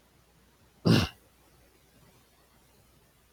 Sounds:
Throat clearing